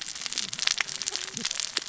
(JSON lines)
{"label": "biophony, cascading saw", "recorder": "SoundTrap 600 or HydroMoth"}